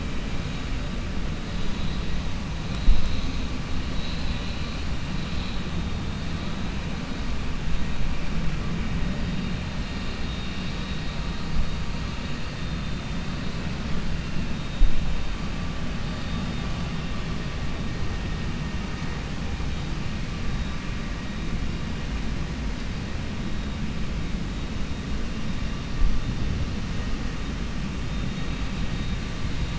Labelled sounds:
3.9	4.8	vessel noise, 2.0 to 4.9 kHz
10.2	11.2	vessel noise, 2.7 to 4.8 kHz

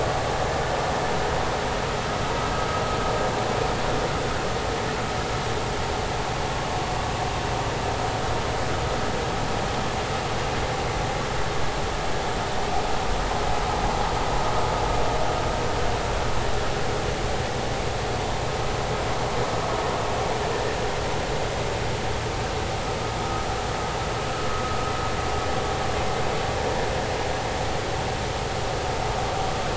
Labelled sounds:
23.2	23.5	vessel noise, 1.2 to 1.4 kHz

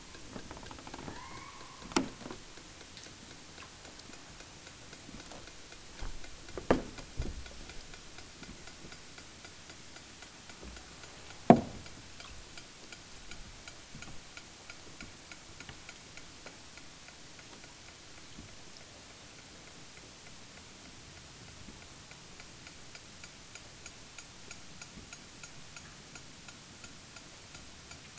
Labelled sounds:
0.8	2.2	killer whale, southern Alaska resident, 0.32 to 2.8 kHz

